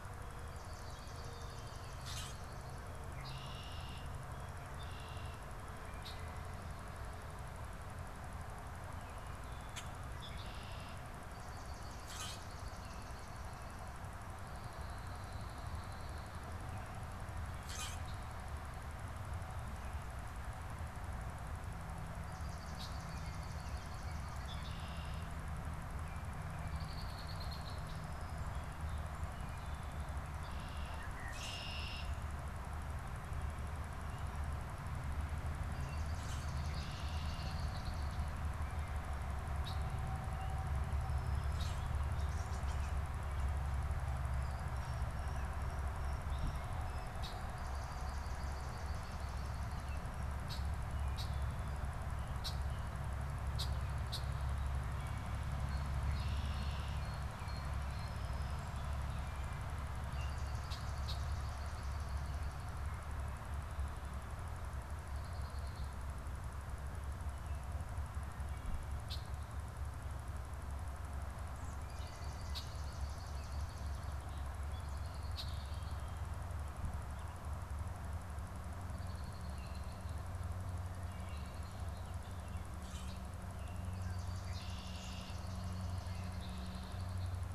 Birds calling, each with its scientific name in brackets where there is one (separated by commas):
Red-winged Blackbird (Agelaius phoeniceus), unidentified bird, Blue Jay (Cyanocitta cristata), Swamp Sparrow (Melospiza georgiana), Common Grackle (Quiscalus quiscula), Song Sparrow (Melospiza melodia), European Starling (Sturnus vulgaris), Wood Thrush (Hylocichla mustelina)